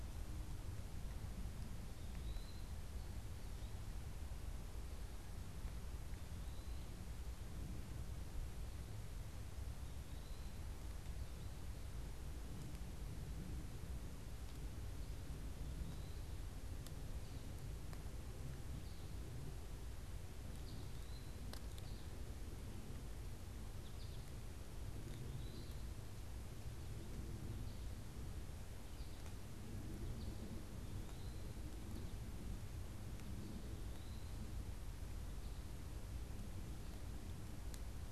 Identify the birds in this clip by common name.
Eastern Wood-Pewee, American Goldfinch